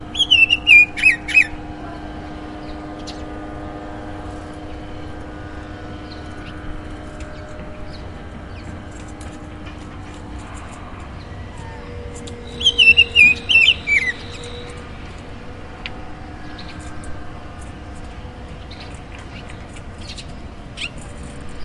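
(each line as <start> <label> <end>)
0.0 A bird is singing nearby. 1.5
0.0 Cars passing in the distance. 21.6
12.6 A bird is singing nearby. 14.2
18.3 Birds chirp in the distance. 21.6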